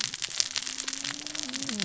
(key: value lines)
label: biophony, cascading saw
recorder: SoundTrap 600 or HydroMoth